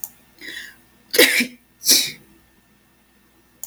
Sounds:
Sneeze